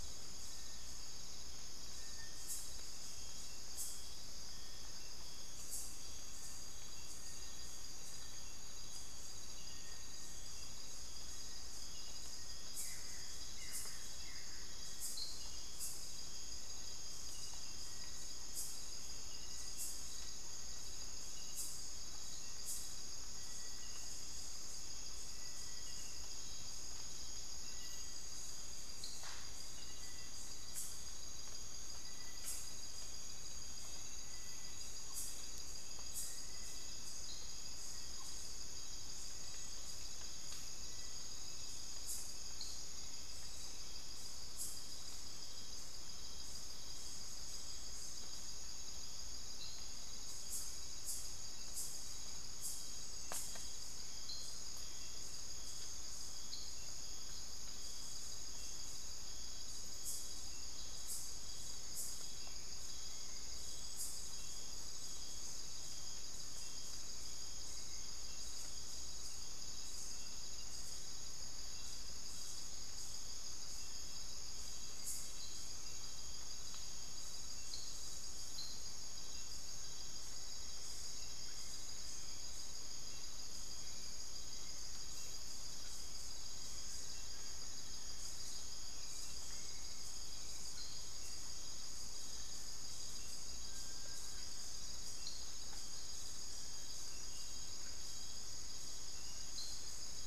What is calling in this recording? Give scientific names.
Crypturellus soui, Xiphorhynchus guttatus, unidentified bird, Turdus hauxwelli